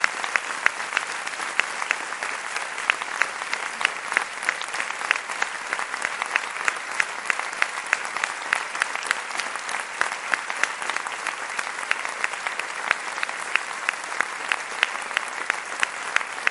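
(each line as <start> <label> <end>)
0.0 A crowd applauds steadily. 16.5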